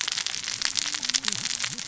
{"label": "biophony, cascading saw", "recorder": "SoundTrap 600 or HydroMoth"}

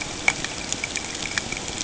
{"label": "ambient", "recorder": "HydroMoth"}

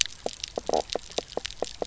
{"label": "biophony, knock croak", "recorder": "SoundTrap 300"}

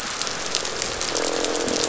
{"label": "biophony, croak", "recorder": "SoundTrap 500"}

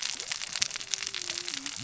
{"label": "biophony, cascading saw", "recorder": "SoundTrap 600 or HydroMoth"}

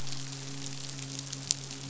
{"label": "biophony, midshipman", "recorder": "SoundTrap 500"}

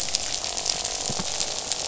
{"label": "biophony, croak", "recorder": "SoundTrap 500"}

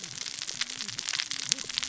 {"label": "biophony, cascading saw", "recorder": "SoundTrap 600 or HydroMoth"}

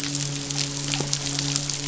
{"label": "biophony, midshipman", "recorder": "SoundTrap 500"}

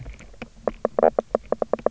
{"label": "biophony, knock croak", "recorder": "SoundTrap 300"}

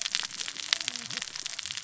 {"label": "biophony, cascading saw", "recorder": "SoundTrap 600 or HydroMoth"}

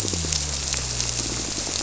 {"label": "biophony", "recorder": "SoundTrap 300"}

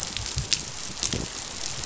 {"label": "biophony", "recorder": "SoundTrap 500"}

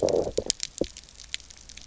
{"label": "biophony, low growl", "recorder": "SoundTrap 300"}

